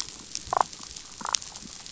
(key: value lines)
label: biophony, damselfish
recorder: SoundTrap 500